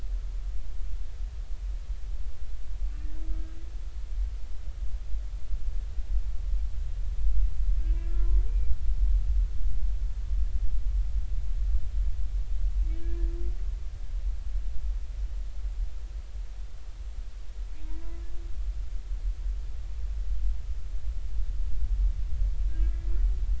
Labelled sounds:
2.9	3.2	humpback whale, 1.8 to 1.9 kHz
7.9	8.7	humpback whale, 0.99 to 2.5 kHz
13.0	13.3	humpback whale, 1.6 to 1.8 kHz
22.7	22.9	humpback whale, 1.5 to 1.7 kHz

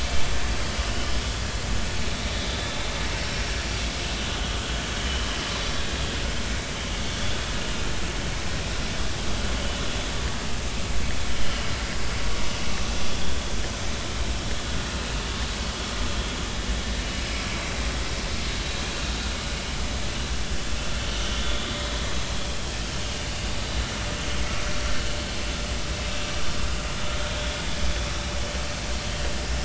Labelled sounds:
3.2	3.4	vessel noise, 5.4 to 5.5 kHz
5.0	5.2	vessel noise, 2.9 to 3.2 kHz
6.5	6.7	vessel noise, 2.2 to 2.4 kHz
11.4	11.7	vessel noise, 2.8 to 3.2 kHz

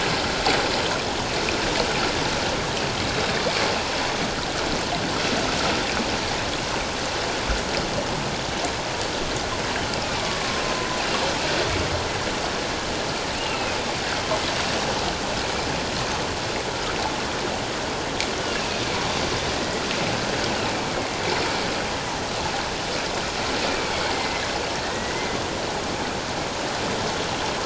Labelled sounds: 3.1	3.4	killer whale, northern resident, A clan, AA subclan, 3.6 to 3.9 kHz
10.2	10.6	killer whale, northern resident, A clan, AA subclan, 1.0 to 1.2 kHz
13.4	13.8	killer whale, northern resident, A clan, AA subclan, 2.4 to 3.0 kHz
18.4	18.8	killer whale, northern resident, A clan, AA subclan, 2.4 to 3.0 kHz
19.5	19.8	killer whale, northern resident, A clan, AA subclan, 1.9 to 2.0 kHz
23.6	24.4	killer whale, northern resident, A clan, AA subclan, 2.0 to 2.6 kHz
24.7	25.1	killer whale, northern resident, A clan, AA subclan, 1.7 to 2.0 kHz

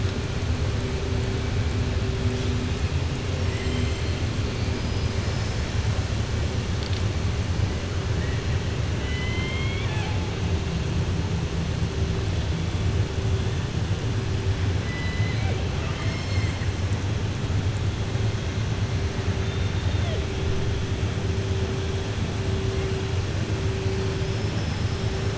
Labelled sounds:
3.4	4.2	killer whale, southern resident, 1.8 to 4.1 kHz
8.9	10.2	killer whale, southern resident, 0.76 to 4.0 kHz
15.7	16.6	killer whale, southern resident, 0.68 to 5.4 kHz
19.4	20.2	killer whale, southern resident, 3.0 to 4.2 kHz

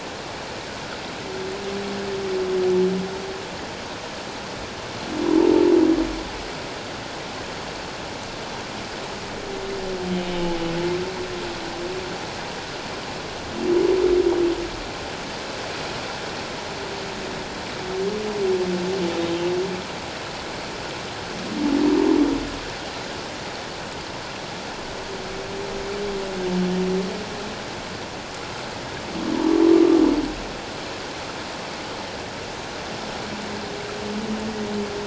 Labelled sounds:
10.3	10.6	humpback whale, 2.9 to 3.1 kHz

